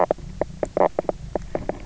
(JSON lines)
{"label": "biophony, knock croak", "recorder": "SoundTrap 300"}